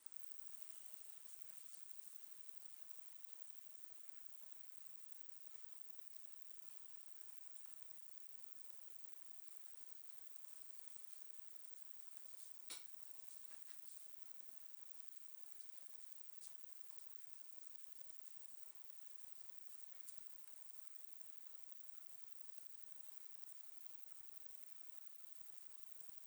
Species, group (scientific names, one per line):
Poecilimon ebneri
Orthoptera